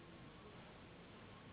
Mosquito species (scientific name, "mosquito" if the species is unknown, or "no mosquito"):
Anopheles gambiae s.s.